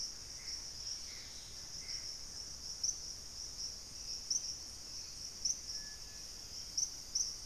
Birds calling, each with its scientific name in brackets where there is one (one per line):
Dusky-capped Greenlet (Pachysylvia hypoxantha)
Black-faced Antthrush (Formicarius analis)
Black-capped Becard (Pachyramphus marginatus)
Gray Antbird (Cercomacra cinerascens)